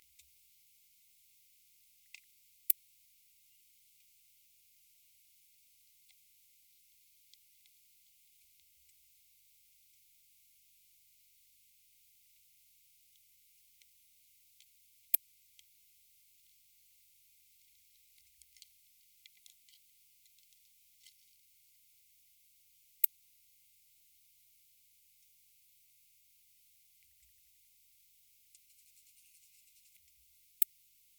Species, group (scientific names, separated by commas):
Poecilimon ornatus, Orthoptera